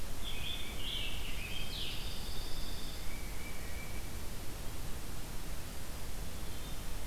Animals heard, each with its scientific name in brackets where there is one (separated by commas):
Tufted Titmouse (Baeolophus bicolor), Pine Warbler (Setophaga pinus), Scarlet Tanager (Piranga olivacea)